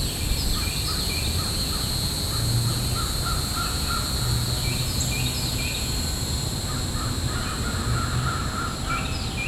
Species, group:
Neocicada hieroglyphica, Cicadidae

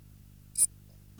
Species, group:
Eupholidoptera megastyla, Orthoptera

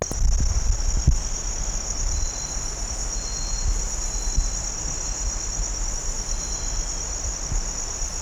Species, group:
Ducetia japonica, Orthoptera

